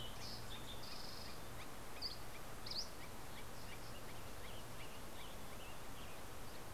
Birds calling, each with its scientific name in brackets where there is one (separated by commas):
Northern Flicker (Colaptes auratus), Western Tanager (Piranga ludoviciana), Fox Sparrow (Passerella iliaca), Dusky Flycatcher (Empidonax oberholseri)